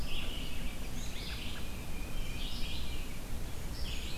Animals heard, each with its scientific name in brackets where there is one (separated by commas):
American Robin (Turdus migratorius), Red-eyed Vireo (Vireo olivaceus), Tufted Titmouse (Baeolophus bicolor), Black-and-white Warbler (Mniotilta varia)